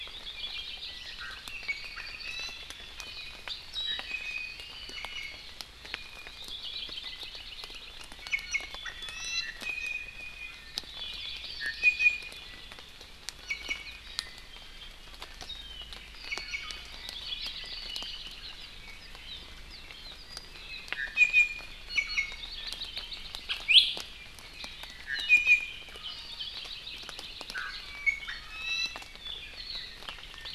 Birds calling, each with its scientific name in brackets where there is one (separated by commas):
Warbling White-eye (Zosterops japonicus), Iiwi (Drepanis coccinea), Hawaii Creeper (Loxops mana), Apapane (Himatione sanguinea)